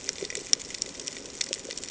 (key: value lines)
label: ambient
recorder: HydroMoth